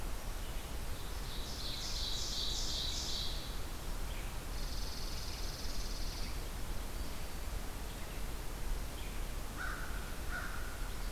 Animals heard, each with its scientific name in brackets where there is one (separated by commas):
Ovenbird (Seiurus aurocapilla), Chipping Sparrow (Spizella passerina), American Crow (Corvus brachyrhynchos)